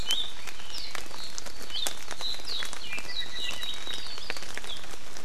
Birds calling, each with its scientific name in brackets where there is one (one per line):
Hawaii Amakihi (Chlorodrepanis virens)
Apapane (Himatione sanguinea)